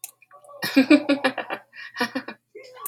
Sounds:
Laughter